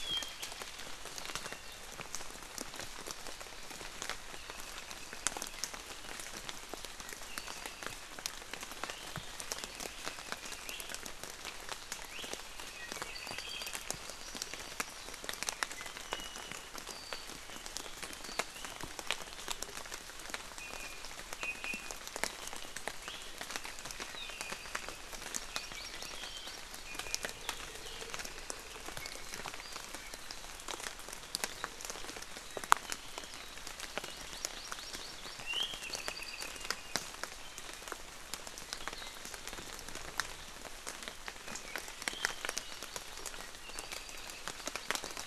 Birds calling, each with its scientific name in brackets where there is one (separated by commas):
Hawaii Amakihi (Chlorodrepanis virens), Iiwi (Drepanis coccinea), Apapane (Himatione sanguinea)